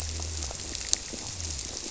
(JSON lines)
{"label": "biophony", "recorder": "SoundTrap 300"}